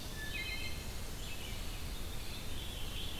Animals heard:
Red-eyed Vireo (Vireo olivaceus)
Veery (Catharus fuscescens)
Eastern Wood-Pewee (Contopus virens)
Wood Thrush (Hylocichla mustelina)
Blackburnian Warbler (Setophaga fusca)

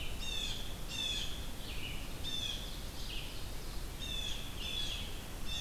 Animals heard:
Red-eyed Vireo (Vireo olivaceus)
Blue Jay (Cyanocitta cristata)

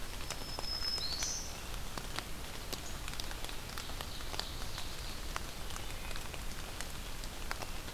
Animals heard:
Wood Thrush (Hylocichla mustelina)
Ovenbird (Seiurus aurocapilla)
Black-throated Green Warbler (Setophaga virens)

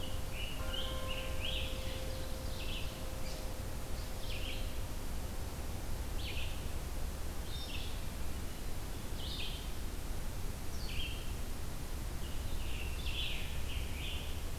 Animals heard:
Scarlet Tanager (Piranga olivacea)
Red-eyed Vireo (Vireo olivaceus)
Ovenbird (Seiurus aurocapilla)

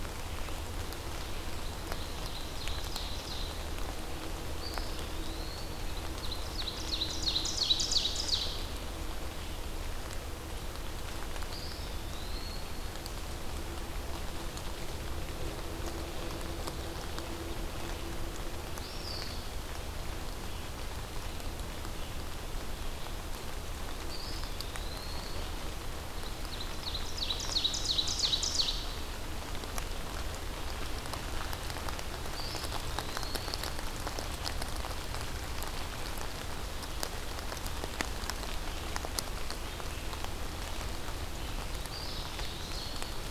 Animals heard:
Ovenbird (Seiurus aurocapilla)
Eastern Wood-Pewee (Contopus virens)

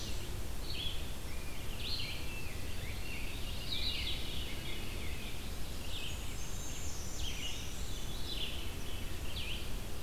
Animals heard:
Red-eyed Vireo (Vireo olivaceus)
Veery (Catharus fuscescens)
Rose-breasted Grosbeak (Pheucticus ludovicianus)
Black-and-white Warbler (Mniotilta varia)

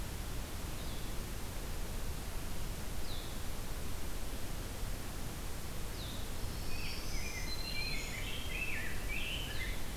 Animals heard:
Blue-headed Vireo (Vireo solitarius)
Black-throated Green Warbler (Setophaga virens)
Rose-breasted Grosbeak (Pheucticus ludovicianus)

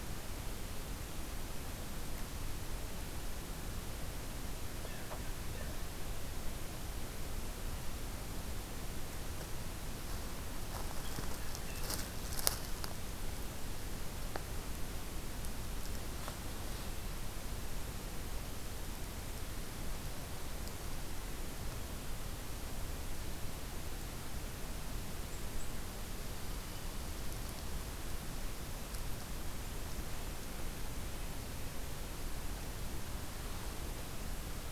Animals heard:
Blue Jay (Cyanocitta cristata)

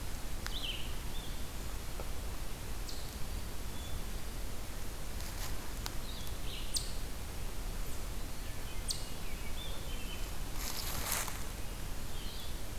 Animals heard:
Eastern Chipmunk (Tamias striatus)
American Robin (Turdus migratorius)
Red-eyed Vireo (Vireo olivaceus)

